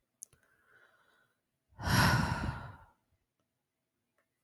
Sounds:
Sigh